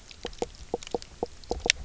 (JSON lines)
{"label": "biophony, knock croak", "recorder": "SoundTrap 300"}